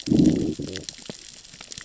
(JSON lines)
{"label": "biophony, growl", "recorder": "SoundTrap 600 or HydroMoth"}